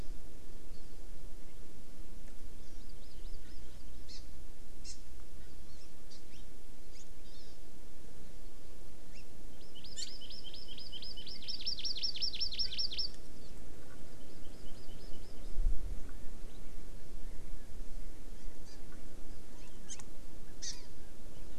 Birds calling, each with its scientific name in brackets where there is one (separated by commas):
Hawaii Amakihi (Chlorodrepanis virens)